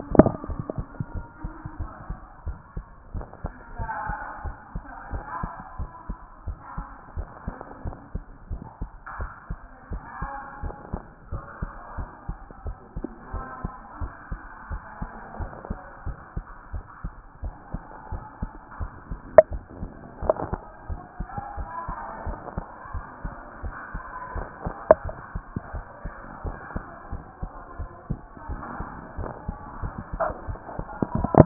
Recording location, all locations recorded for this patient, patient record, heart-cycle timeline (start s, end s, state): tricuspid valve (TV)
aortic valve (AV)+pulmonary valve (PV)+tricuspid valve (TV)+mitral valve (MV)
#Age: nan
#Sex: Female
#Height: nan
#Weight: nan
#Pregnancy status: True
#Murmur: Absent
#Murmur locations: nan
#Most audible location: nan
#Systolic murmur timing: nan
#Systolic murmur shape: nan
#Systolic murmur grading: nan
#Systolic murmur pitch: nan
#Systolic murmur quality: nan
#Diastolic murmur timing: nan
#Diastolic murmur shape: nan
#Diastolic murmur grading: nan
#Diastolic murmur pitch: nan
#Diastolic murmur quality: nan
#Outcome: Normal
#Campaign: 2014 screening campaign
0.00	1.14	unannotated
1.14	1.26	S1
1.26	1.42	systole
1.42	1.52	S2
1.52	1.78	diastole
1.78	1.90	S1
1.90	2.08	systole
2.08	2.18	S2
2.18	2.46	diastole
2.46	2.58	S1
2.58	2.76	systole
2.76	2.84	S2
2.84	3.14	diastole
3.14	3.26	S1
3.26	3.42	systole
3.42	3.52	S2
3.52	3.78	diastole
3.78	3.90	S1
3.90	4.08	systole
4.08	4.16	S2
4.16	4.44	diastole
4.44	4.56	S1
4.56	4.74	systole
4.74	4.84	S2
4.84	5.12	diastole
5.12	5.24	S1
5.24	5.42	systole
5.42	5.50	S2
5.50	5.78	diastole
5.78	5.90	S1
5.90	6.08	systole
6.08	6.18	S2
6.18	6.46	diastole
6.46	6.58	S1
6.58	6.76	systole
6.76	6.86	S2
6.86	7.16	diastole
7.16	7.28	S1
7.28	7.46	systole
7.46	7.54	S2
7.54	7.84	diastole
7.84	7.96	S1
7.96	8.14	systole
8.14	8.24	S2
8.24	8.50	diastole
8.50	8.62	S1
8.62	8.80	systole
8.80	8.90	S2
8.90	9.18	diastole
9.18	9.30	S1
9.30	9.48	systole
9.48	9.58	S2
9.58	9.90	diastole
9.90	10.02	S1
10.02	10.20	systole
10.20	10.30	S2
10.30	10.62	diastole
10.62	10.74	S1
10.74	10.92	systole
10.92	11.02	S2
11.02	11.32	diastole
11.32	11.44	S1
11.44	11.60	systole
11.60	11.70	S2
11.70	11.98	diastole
11.98	12.08	S1
12.08	12.28	systole
12.28	12.38	S2
12.38	12.64	diastole
12.64	12.76	S1
12.76	12.96	systole
12.96	13.06	S2
13.06	13.32	diastole
13.32	13.44	S1
13.44	13.62	systole
13.62	13.72	S2
13.72	14.00	diastole
14.00	14.12	S1
14.12	14.30	systole
14.30	14.40	S2
14.40	14.70	diastole
14.70	14.82	S1
14.82	15.00	systole
15.00	15.10	S2
15.10	15.38	diastole
15.38	15.50	S1
15.50	15.68	systole
15.68	15.78	S2
15.78	16.06	diastole
16.06	16.18	S1
16.18	16.36	systole
16.36	16.44	S2
16.44	16.72	diastole
16.72	16.84	S1
16.84	17.04	systole
17.04	17.12	S2
17.12	17.42	diastole
17.42	17.54	S1
17.54	17.72	systole
17.72	17.82	S2
17.82	18.12	diastole
18.12	18.24	S1
18.24	18.40	systole
18.40	18.50	S2
18.50	18.80	diastole
18.80	18.90	S1
18.90	19.10	systole
19.10	19.20	S2
19.20	19.52	diastole
19.52	19.62	S1
19.62	19.80	systole
19.80	19.90	S2
19.90	20.22	diastole
20.22	20.34	S1
20.34	20.50	systole
20.50	20.60	S2
20.60	20.88	diastole
20.88	21.00	S1
21.00	21.18	systole
21.18	21.28	S2
21.28	21.58	diastole
21.58	21.68	S1
21.68	21.88	systole
21.88	21.96	S2
21.96	22.26	diastole
22.26	22.38	S1
22.38	22.56	systole
22.56	22.64	S2
22.64	22.94	diastole
22.94	23.04	S1
23.04	23.24	systole
23.24	23.34	S2
23.34	23.62	diastole
23.62	23.74	S1
23.74	23.94	systole
23.94	24.02	S2
24.02	24.34	diastole
24.34	24.48	S1
24.48	24.64	systole
24.64	24.74	S2
24.74	25.06	diastole
25.06	25.16	S1
25.16	25.34	systole
25.34	25.44	S2
25.44	25.74	diastole
25.74	25.84	S1
25.84	26.04	systole
26.04	26.12	S2
26.12	26.44	diastole
26.44	26.56	S1
26.56	26.74	systole
26.74	26.84	S2
26.84	27.12	diastole
27.12	27.24	S1
27.24	27.42	systole
27.42	27.50	S2
27.50	27.78	diastole
27.78	27.90	S1
27.90	28.08	systole
28.08	28.20	S2
28.20	28.48	diastole
28.48	28.60	S1
28.60	28.78	systole
28.78	28.88	S2
28.88	29.18	diastole
29.18	29.30	S1
29.30	29.46	systole
29.46	29.56	S2
29.56	29.82	diastole
29.82	29.94	S1
29.94	30.12	systole
30.12	30.22	S2
30.22	30.48	diastole
30.48	30.58	S1
30.58	30.78	systole
30.78	30.86	S2
30.86	31.18	diastole
31.18	31.46	unannotated